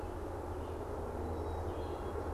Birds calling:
Red-eyed Vireo (Vireo olivaceus), Black-capped Chickadee (Poecile atricapillus)

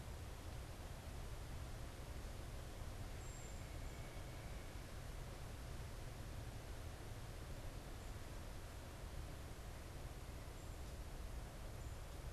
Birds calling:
unidentified bird

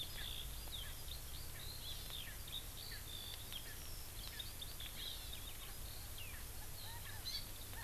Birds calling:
Eurasian Skylark (Alauda arvensis), Hawaii Amakihi (Chlorodrepanis virens), Erckel's Francolin (Pternistis erckelii)

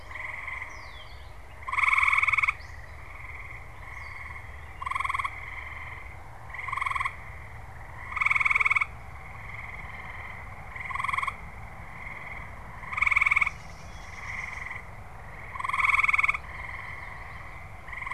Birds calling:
Gray Catbird (Dumetella carolinensis), Common Yellowthroat (Geothlypis trichas)

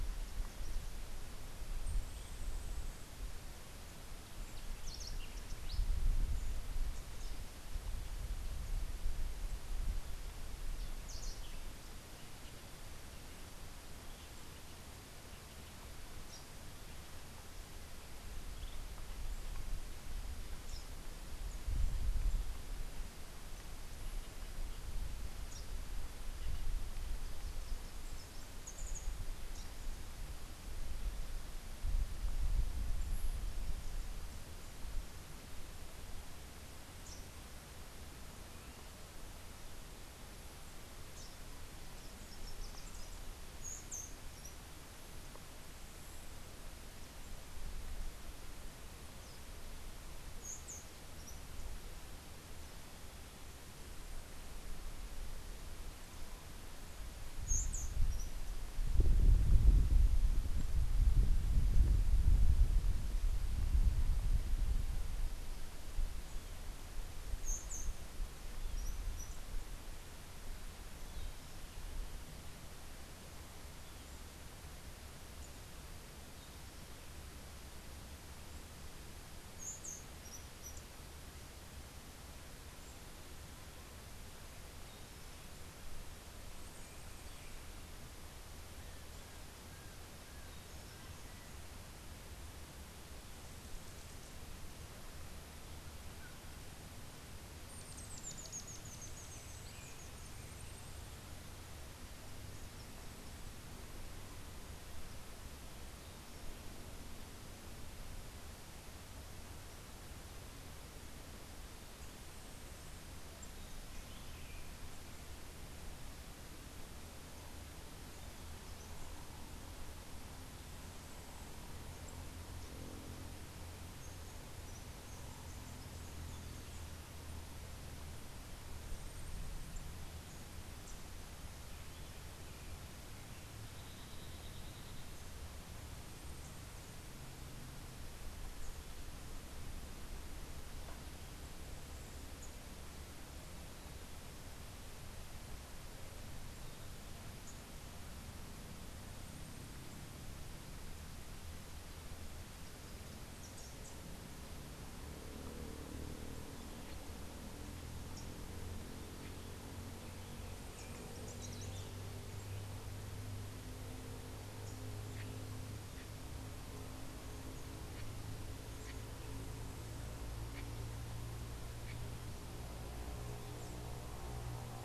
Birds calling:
Rufous-tailed Hummingbird (Amazilia tzacatl), House Wren (Troglodytes aedon)

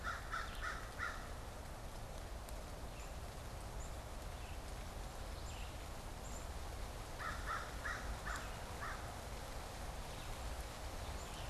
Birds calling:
American Crow (Corvus brachyrhynchos), Black-capped Chickadee (Poecile atricapillus), Red-eyed Vireo (Vireo olivaceus)

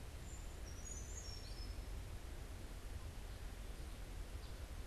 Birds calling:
Brown Creeper (Certhia americana)

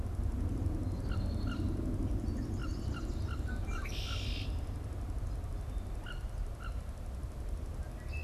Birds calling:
Red-winged Blackbird (Agelaius phoeniceus), Wood Duck (Aix sponsa)

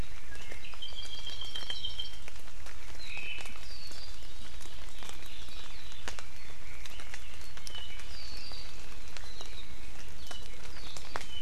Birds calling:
Warbling White-eye (Zosterops japonicus), Apapane (Himatione sanguinea), Omao (Myadestes obscurus)

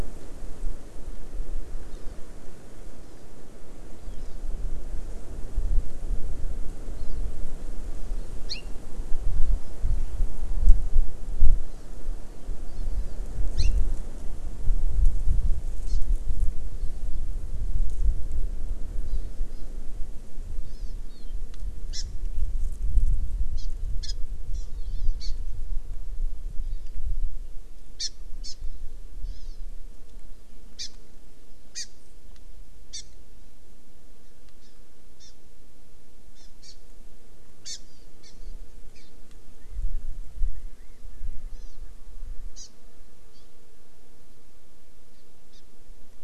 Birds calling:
California Quail (Callipepla californica), Hawaii Amakihi (Chlorodrepanis virens)

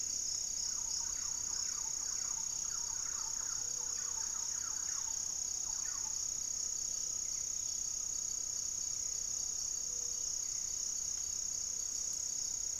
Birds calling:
Gray-fronted Dove (Leptotila rufaxilla), Thrush-like Wren (Campylorhynchus turdinus), Great Antshrike (Taraba major)

